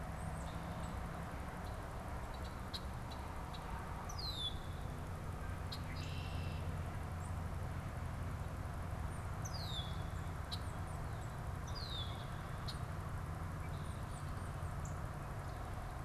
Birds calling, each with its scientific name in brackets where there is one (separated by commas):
Red-winged Blackbird (Agelaius phoeniceus), Northern Cardinal (Cardinalis cardinalis), Tufted Titmouse (Baeolophus bicolor)